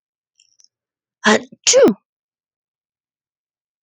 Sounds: Sneeze